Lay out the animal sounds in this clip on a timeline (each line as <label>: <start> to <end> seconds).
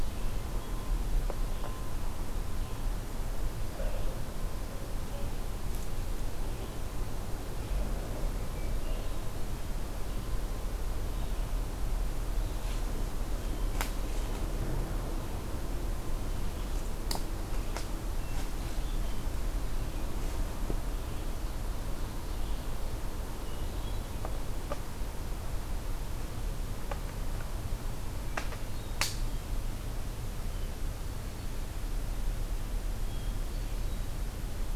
Red-eyed Vireo (Vireo olivaceus): 0.0 to 13.8 seconds
Hermit Thrush (Catharus guttatus): 8.3 to 9.8 seconds
Hermit Thrush (Catharus guttatus): 17.9 to 19.4 seconds
Hermit Thrush (Catharus guttatus): 23.1 to 24.6 seconds
Hermit Thrush (Catharus guttatus): 28.1 to 29.6 seconds
Hermit Thrush (Catharus guttatus): 30.4 to 31.6 seconds
Hermit Thrush (Catharus guttatus): 32.9 to 34.2 seconds